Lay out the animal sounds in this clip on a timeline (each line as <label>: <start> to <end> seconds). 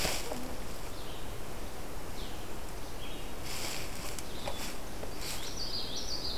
Red-eyed Vireo (Vireo olivaceus): 0.8 to 6.4 seconds
Common Yellowthroat (Geothlypis trichas): 5.2 to 6.4 seconds